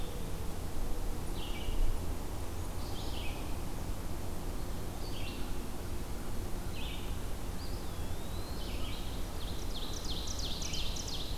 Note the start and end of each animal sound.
0.0s-11.4s: Red-eyed Vireo (Vireo olivaceus)
7.5s-8.7s: Eastern Wood-Pewee (Contopus virens)
9.2s-11.4s: Ovenbird (Seiurus aurocapilla)

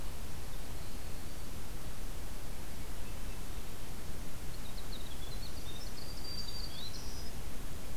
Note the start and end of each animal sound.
4.2s-7.0s: Winter Wren (Troglodytes hiemalis)
5.4s-7.5s: Black-throated Green Warbler (Setophaga virens)

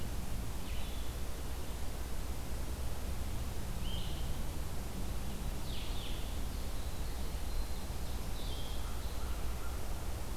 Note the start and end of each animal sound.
0.0s-10.4s: Blue-headed Vireo (Vireo solitarius)
6.2s-8.7s: Ovenbird (Seiurus aurocapilla)

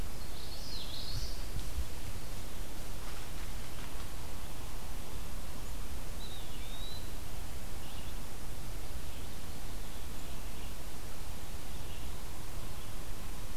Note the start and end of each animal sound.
0.0s-1.4s: Common Yellowthroat (Geothlypis trichas)
5.8s-7.4s: Eastern Wood-Pewee (Contopus virens)
7.6s-13.6s: Red-eyed Vireo (Vireo olivaceus)

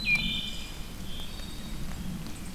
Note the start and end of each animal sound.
0.0s-1.9s: Wood Thrush (Hylocichla mustelina)
0.0s-2.5s: Red-eyed Vireo (Vireo olivaceus)
0.0s-2.5s: unknown mammal

